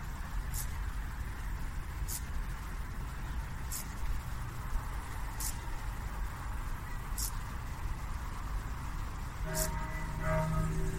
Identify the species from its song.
Chorthippus brunneus